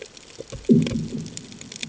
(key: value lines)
label: anthrophony, bomb
recorder: HydroMoth